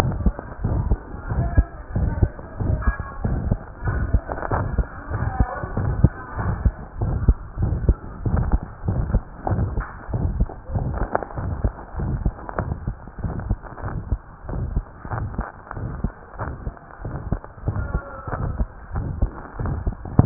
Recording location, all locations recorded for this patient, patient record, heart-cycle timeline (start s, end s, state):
pulmonary valve (PV)
aortic valve (AV)+pulmonary valve (PV)+tricuspid valve (TV)+mitral valve (MV)
#Age: Child
#Sex: Female
#Height: 103.0 cm
#Weight: 13.1 kg
#Pregnancy status: False
#Murmur: Present
#Murmur locations: aortic valve (AV)+mitral valve (MV)+pulmonary valve (PV)+tricuspid valve (TV)
#Most audible location: tricuspid valve (TV)
#Systolic murmur timing: Holosystolic
#Systolic murmur shape: Diamond
#Systolic murmur grading: III/VI or higher
#Systolic murmur pitch: High
#Systolic murmur quality: Harsh
#Diastolic murmur timing: nan
#Diastolic murmur shape: nan
#Diastolic murmur grading: nan
#Diastolic murmur pitch: nan
#Diastolic murmur quality: nan
#Outcome: Abnormal
#Campaign: 2015 screening campaign
0.00	0.57	unannotated
0.57	0.73	S1
0.73	0.86	systole
0.86	0.98	S2
0.98	1.25	diastole
1.25	1.39	S1
1.39	1.52	systole
1.52	1.66	S2
1.66	1.92	diastole
1.92	2.07	S1
2.07	2.16	systole
2.16	2.30	S2
2.30	2.57	diastole
2.57	2.70	S1
2.70	2.84	systole
2.84	2.96	S2
2.96	3.21	diastole
3.21	3.35	S1
3.35	3.46	systole
3.46	3.58	S2
3.58	3.82	diastole
3.82	3.95	S1
3.95	4.10	systole
4.10	4.24	S2
4.24	4.50	diastole
4.50	4.62	S1
4.62	4.74	systole
4.74	4.88	S2
4.88	5.08	diastole
5.08	5.21	S1
5.21	5.36	systole
5.36	5.50	S2
5.50	5.74	diastole
5.74	5.86	S1
5.86	5.98	systole
5.98	6.12	S2
6.12	6.35	diastole
6.35	6.46	S1
6.46	6.62	systole
6.62	6.74	S2
6.74	7.00	diastole
7.00	7.12	S1
7.12	7.20	systole
7.20	7.34	S2
7.34	7.57	diastole
7.57	7.72	S1
7.72	7.84	systole
7.84	7.98	S2
7.98	8.21	diastole
8.21	8.39	S1
8.39	8.49	systole
8.49	8.60	S2
8.60	8.82	diastole
8.82	8.98	S1
8.98	9.10	systole
9.10	9.22	S2
9.22	9.46	diastole
9.46	9.58	S1
9.58	9.73	systole
9.73	9.84	S2
9.84	10.10	diastole
10.10	10.23	S1
10.23	10.36	systole
10.36	10.48	S2
10.48	10.67	diastole
10.67	10.83	S1
10.83	20.26	unannotated